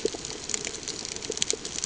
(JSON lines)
{"label": "ambient", "recorder": "HydroMoth"}